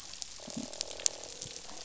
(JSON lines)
{"label": "biophony, croak", "recorder": "SoundTrap 500"}
{"label": "biophony", "recorder": "SoundTrap 500"}